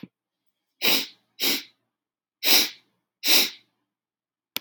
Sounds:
Sniff